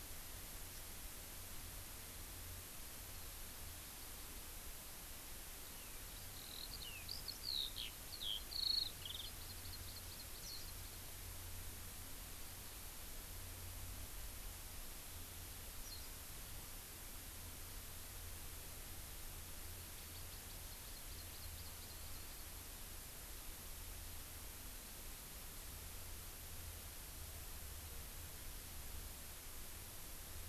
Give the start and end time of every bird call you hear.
[5.63, 9.33] Eurasian Skylark (Alauda arvensis)
[9.23, 11.03] Hawaii Amakihi (Chlorodrepanis virens)
[10.33, 10.63] Warbling White-eye (Zosterops japonicus)
[15.83, 16.03] Warbling White-eye (Zosterops japonicus)
[19.93, 22.53] Hawaii Amakihi (Chlorodrepanis virens)

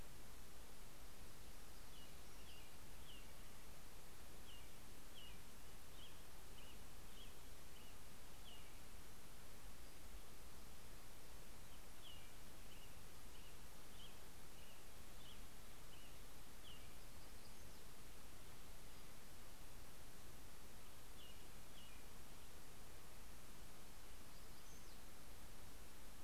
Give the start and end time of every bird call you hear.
[1.43, 9.23] American Robin (Turdus migratorius)
[11.53, 17.53] American Robin (Turdus migratorius)
[16.13, 18.73] Black-throated Gray Warbler (Setophaga nigrescens)
[20.83, 23.03] American Robin (Turdus migratorius)
[23.13, 26.03] Black-throated Gray Warbler (Setophaga nigrescens)

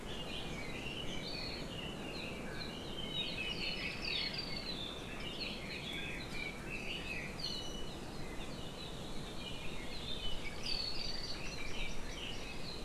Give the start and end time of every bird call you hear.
[0.00, 4.60] Red-billed Leiothrix (Leiothrix lutea)
[5.10, 7.30] Red-billed Leiothrix (Leiothrix lutea)
[7.40, 8.00] Iiwi (Drepanis coccinea)
[9.30, 12.80] Red-billed Leiothrix (Leiothrix lutea)
[11.00, 12.40] Hawaii Amakihi (Chlorodrepanis virens)

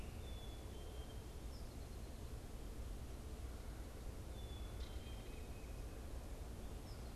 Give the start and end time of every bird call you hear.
[0.00, 0.63] Northern Flicker (Colaptes auratus)
[0.00, 7.16] Black-capped Chickadee (Poecile atricapillus)

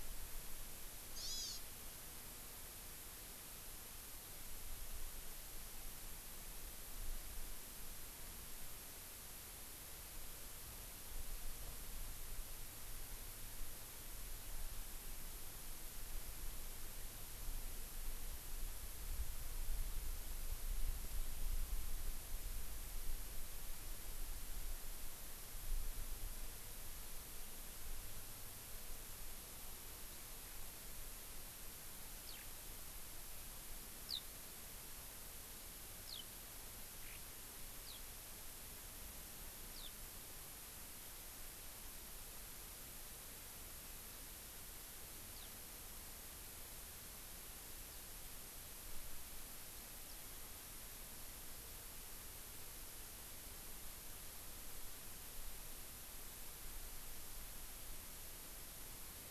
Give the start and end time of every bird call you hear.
[1.14, 1.64] Hawaii Amakihi (Chlorodrepanis virens)
[32.23, 32.44] Eurasian Skylark (Alauda arvensis)
[34.03, 34.23] Eurasian Skylark (Alauda arvensis)
[36.03, 36.23] Eurasian Skylark (Alauda arvensis)
[37.03, 37.23] Eurasian Skylark (Alauda arvensis)
[37.84, 38.03] Eurasian Skylark (Alauda arvensis)
[39.73, 39.94] Eurasian Skylark (Alauda arvensis)
[45.34, 45.44] Eurasian Skylark (Alauda arvensis)
[47.84, 48.03] Eurasian Skylark (Alauda arvensis)

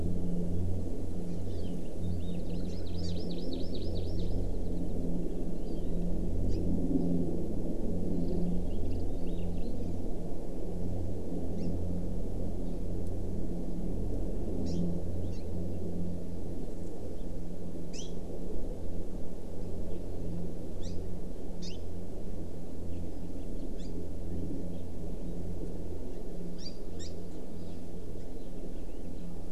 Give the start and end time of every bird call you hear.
[1.46, 1.76] Hawaii Amakihi (Chlorodrepanis virens)
[2.06, 3.16] House Finch (Haemorhous mexicanus)
[2.66, 2.76] Hawaii Amakihi (Chlorodrepanis virens)
[3.06, 4.36] Hawaii Amakihi (Chlorodrepanis virens)
[6.46, 6.56] Hawaii Amakihi (Chlorodrepanis virens)
[9.26, 9.76] Hawaii Elepaio (Chasiempis sandwichensis)
[11.56, 11.66] Hawaii Amakihi (Chlorodrepanis virens)
[14.66, 14.86] Hawaii Amakihi (Chlorodrepanis virens)
[15.36, 15.46] Hawaii Amakihi (Chlorodrepanis virens)
[17.96, 18.16] Hawaii Amakihi (Chlorodrepanis virens)
[20.76, 20.96] Hawaii Amakihi (Chlorodrepanis virens)
[21.66, 21.76] Hawaii Amakihi (Chlorodrepanis virens)
[23.76, 23.86] Hawaii Amakihi (Chlorodrepanis virens)
[26.56, 27.06] Hawaii Amakihi (Chlorodrepanis virens)

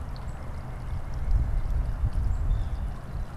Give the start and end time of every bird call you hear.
[0.00, 3.37] Black-capped Chickadee (Poecile atricapillus)
[0.10, 1.80] White-breasted Nuthatch (Sitta carolinensis)
[2.30, 3.00] Northern Flicker (Colaptes auratus)

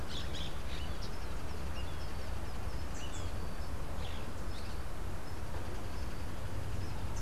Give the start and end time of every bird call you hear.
[0.00, 7.21] Orange-fronted Parakeet (Eupsittula canicularis)

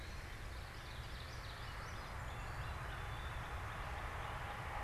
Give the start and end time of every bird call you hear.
[0.30, 2.40] Common Yellowthroat (Geothlypis trichas)
[0.40, 2.40] Ovenbird (Seiurus aurocapilla)
[2.00, 4.70] Northern Cardinal (Cardinalis cardinalis)

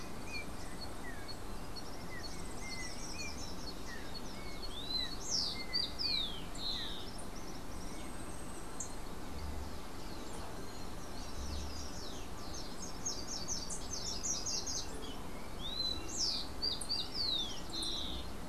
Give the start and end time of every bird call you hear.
[0.00, 3.96] Slate-throated Redstart (Myioborus miniatus)
[0.00, 7.06] Yellow-backed Oriole (Icterus chrysater)
[2.16, 9.06] Yellow-faced Grassquit (Tiaris olivaceus)
[4.56, 7.16] Rufous-collared Sparrow (Zonotrichia capensis)
[6.86, 8.06] Common Tody-Flycatcher (Todirostrum cinereum)
[10.86, 15.16] Slate-throated Redstart (Myioborus miniatus)
[15.46, 18.36] Rufous-collared Sparrow (Zonotrichia capensis)

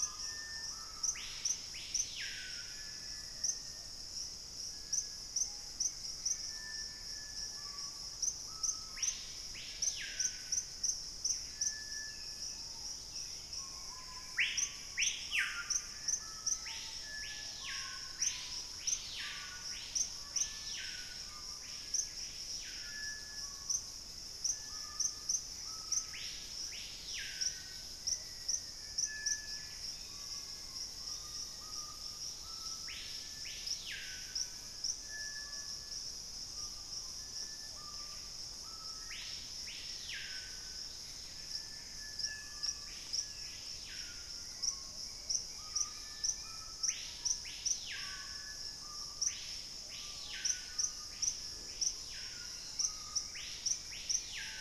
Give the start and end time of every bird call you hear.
[0.00, 0.88] unidentified bird
[0.00, 4.28] Thrush-like Wren (Campylorhynchus turdinus)
[0.00, 54.61] Screaming Piha (Lipaugus vociferans)
[1.78, 4.08] Black-faced Antthrush (Formicarius analis)
[5.18, 11.18] Bright-rumped Attila (Attila spadiceus)
[6.08, 8.08] Gray Antbird (Cercomacra cinerascens)
[11.08, 14.68] Buff-breasted Wren (Cantorchilus leucotis)
[11.88, 14.48] Black-capped Becard (Pachyramphus marginatus)
[15.68, 17.98] Black-faced Antthrush (Formicarius analis)
[17.98, 21.18] Thrush-like Wren (Campylorhynchus turdinus)
[20.88, 22.88] Hauxwell's Thrush (Turdus hauxwelli)
[24.58, 26.88] Gray Antbird (Cercomacra cinerascens)
[27.18, 31.78] Black-faced Antthrush (Formicarius analis)
[28.78, 30.88] Black-capped Becard (Pachyramphus marginatus)
[29.28, 30.18] Buff-breasted Wren (Cantorchilus leucotis)
[30.08, 31.78] unidentified bird
[31.78, 32.98] Dusky-capped Greenlet (Pachysylvia hypoxantha)
[37.88, 38.38] Buff-breasted Wren (Cantorchilus leucotis)
[38.78, 40.98] Black-faced Antthrush (Formicarius analis)
[40.28, 46.68] Dusky-capped Greenlet (Pachysylvia hypoxantha)
[40.88, 42.78] Gray Antbird (Cercomacra cinerascens)
[42.08, 44.68] Black-capped Becard (Pachyramphus marginatus)
[44.88, 46.98] Bright-rumped Attila (Attila spadiceus)

